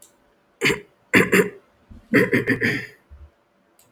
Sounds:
Throat clearing